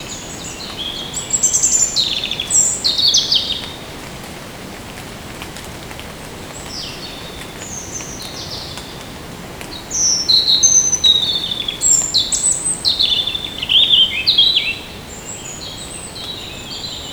does a car drive by?
no